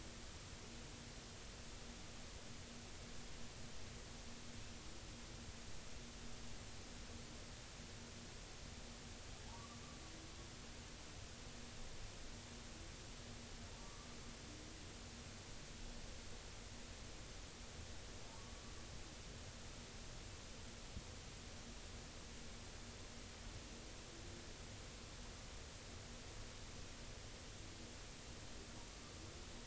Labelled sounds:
9.5	9.8	humpback whale, 1.1 to 1.2 kHz
13.8	14.1	humpback whale, 1.1 to 1.2 kHz

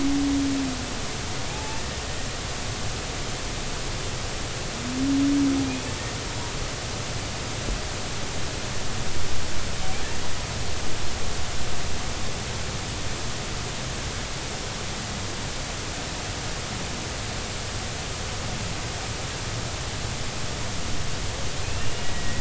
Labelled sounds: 1.5	1.8	humpback whale, 0.80 to 0.93 kHz
21.6	22.3	humpback whale, 1.8 to 2.9 kHz

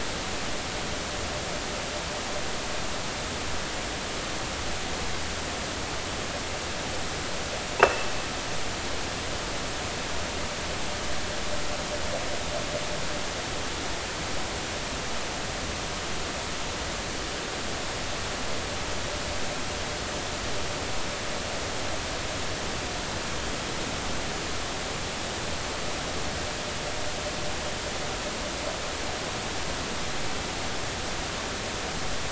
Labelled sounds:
7.8	8.1	vessel noise, 2.6 to 2.8 kHz

